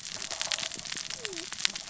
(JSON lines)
{"label": "biophony, cascading saw", "recorder": "SoundTrap 600 or HydroMoth"}